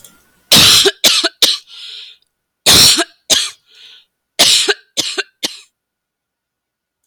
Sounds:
Cough